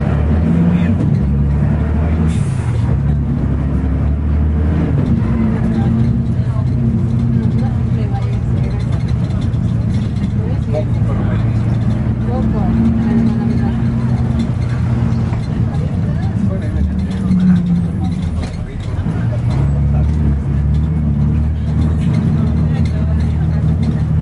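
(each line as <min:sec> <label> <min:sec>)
0:00.0 The engine of a bus is running. 0:24.2
0:00.2 People talking in Spanish inside a bus. 0:03.2
0:05.3 Chairs squeak inside a bus. 0:24.2
0:05.8 People talking in Spanish inside a bus. 0:14.3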